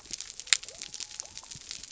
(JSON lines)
{"label": "biophony", "recorder": "SoundTrap 300"}